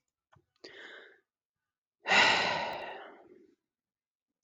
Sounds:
Sigh